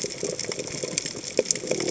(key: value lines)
label: biophony
recorder: HydroMoth